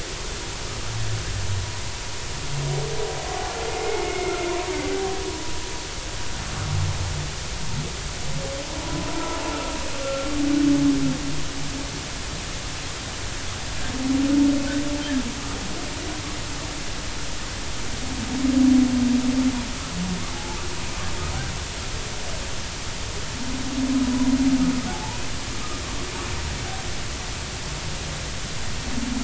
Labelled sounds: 3.7	4.4	humpback whale, 2.0 to 2.2 kHz
9.5	10.3	humpback whale, 1.2 to 1.5 kHz
20.3	20.6	humpback whale, 0.80 to 0.93 kHz
24.9	25.2	humpback whale, 0.80 to 0.99 kHz

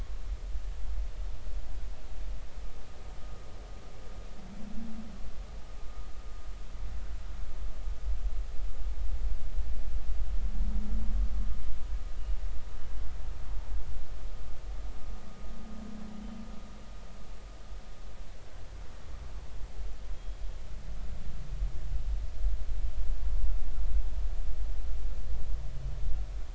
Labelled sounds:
20.1	20.4	humpback whale, 3.2 to 3.3 kHz

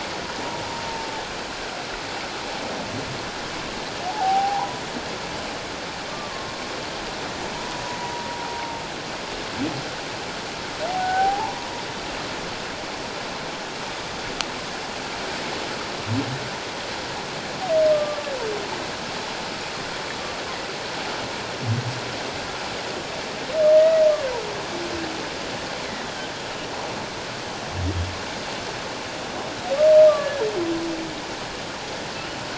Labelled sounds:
4.1	4.8	humpback whale, 0.78 to 1.0 kHz
6.1	6.5	humpback whale, 1.0 to 1.2 kHz
7.6	8.3	humpback whale, 0.91 to 1.1 kHz
10.9	11.7	humpback whale, 0.78 to 1.6 kHz
17.9	18.2	humpback whale, 1.1 to 1.2 kHz
23.8	24.1	humpback whale, 1.8 to 2.0 kHz
30.2	30.5	humpback whale, 1.6 to 1.8 kHz

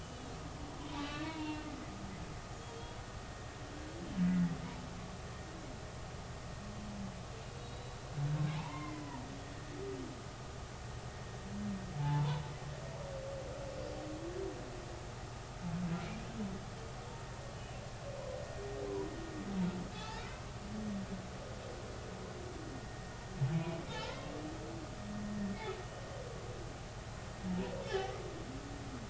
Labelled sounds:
0.0	1.7	humpback whale, 0.86 to 3.6 kHz
2.7	3.0	humpback whale, 3.2 to 3.5 kHz
4.2	4.5	humpback whale, 1.9 to 2.0 kHz
7.4	8.0	humpback whale, 3.7 to 4.4 kHz
8.5	9.1	humpback whale, 0.80 to 2.2 kHz
12.0	12.4	humpback whale, 0.80 to 1.1 kHz
19.9	20.4	humpback whale, 0.80 to 4.5 kHz
22.7	23.1	humpback whale, 1.8 to 1.9 kHz
24.0	24.3	humpback whale, 0.83 to 1.1 kHz
27.8	28.2	humpback whale, 1.9 to 3.2 kHz

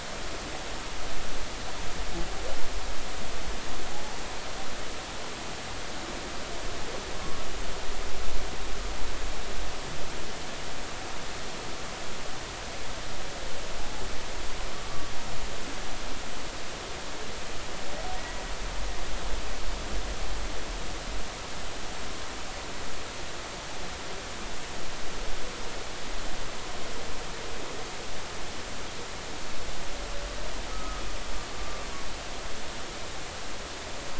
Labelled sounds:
7.2	7.4	humpback whale, 1.1 to 1.2 kHz
13.8	14.0	humpback whale, 0.80 to 0.90 kHz
18.1	18.4	humpback whale, 1.9 to 2.0 kHz
30.7	31.0	humpback whale, 1.2 to 1.3 kHz

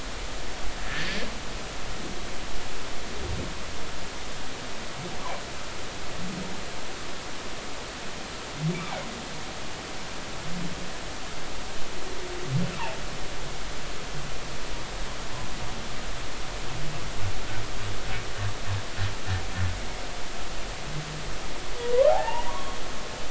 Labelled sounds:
0.8	1.1	humpback whale, 1.6 to 1.9 kHz
8.7	9.1	humpback whale, 2.1 to 2.4 kHz
21.8	22.8	humpback whale, 0.80 to 2.9 kHz

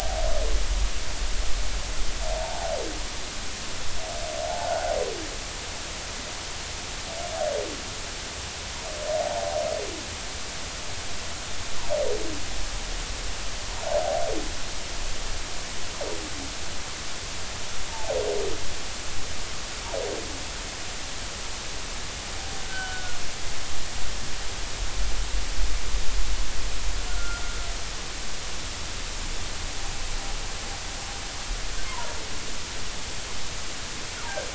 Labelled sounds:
2.3	2.7	humpback whale, 0.80 to 0.96 kHz
4.7	4.9	humpback whale, 1.4 to 1.6 kHz
9.2	9.6	humpback whale, 0.80 to 0.96 kHz
17.9	18.2	humpback whale, 0.80 to 0.96 kHz
22.6	23.2	humpback whale, 1.4 to 1.6 kHz
27.1	27.4	humpback whale, 1.3 to 1.5 kHz
31.9	32.1	humpback whale, 0.90 to 1.1 kHz

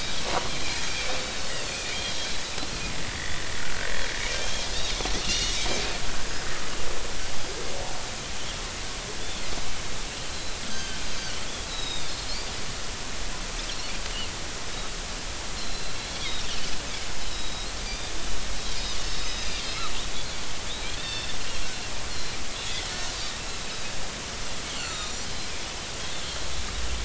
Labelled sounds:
2.7	3.4	Pacific white-sided dolphin, 2.2 to 3.6 kHz
4.3	5.6	Pacific white-sided dolphin, 2.7 to 6.0 kHz
10.3	11.0	Pacific white-sided dolphin, 1.5 to 6.4 kHz
11.7	12.1	Pacific white-sided dolphin, 3.6 to 5.2 kHz
15.6	16.4	Pacific white-sided dolphin, 3.0 to 4.3 kHz
17.3	18.1	Pacific white-sided dolphin, 3.8 to 4.9 kHz
19.0	19.5	Pacific white-sided dolphin, 3.6 to 5.2 kHz
21.0	21.4	Pacific white-sided dolphin, 2.6 to 3.7 kHz
22.1	22.4	Pacific white-sided dolphin, 3.9 to 4.4 kHz
23.1	23.4	Pacific white-sided dolphin, 3.7 to 3.8 kHz
24.6	25.3	Pacific white-sided dolphin, 1.2 to 7.4 kHz

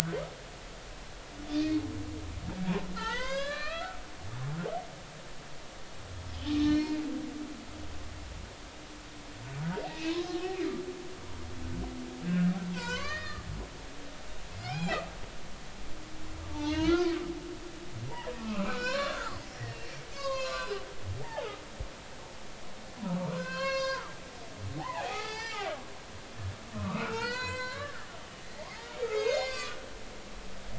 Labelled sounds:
3.0	4.0	humpback whale, 0.83 to 6.4 kHz
6.6	7.0	humpback whale, 2.0 to 5.6 kHz
9.8	10.2	humpback whale, 2.4 to 2.7 kHz
12.2	13.5	humpback whale, 0.90 to 5.1 kHz
14.5	15.0	humpback whale, 0.80 to 4.2 kHz
16.5	17.1	humpback whale, 0.83 to 4.4 kHz
18.4	19.4	humpback whale, 0.93 to 4.3 kHz
20.1	20.8	humpback whale, 0.96 to 6.7 kHz
21.2	21.5	humpback whale, 0.80 to 0.99 kHz
23.2	24.1	humpback whale, 0.86 to 6.5 kHz
24.8	25.7	humpback whale, 0.80 to 6.0 kHz
26.7	29.8	humpback whale, 0.80 to 8.0 kHz

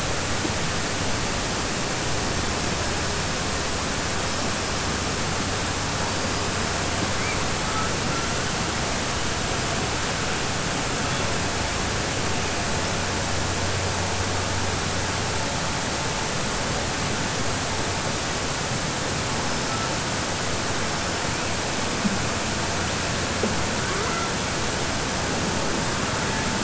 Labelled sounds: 23.8	24.3	killer whale, southern resident, 0.37 to 2.1 kHz

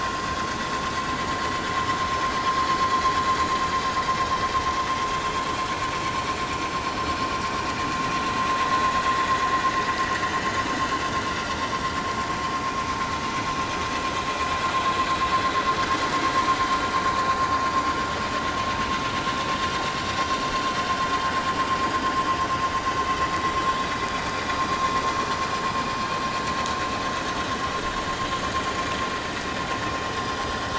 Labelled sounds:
14.9	15.2	vessel noise, 6.8 to 7.1 kHz
23.9	24.2	vessel noise, 2.3 to 2.5 kHz

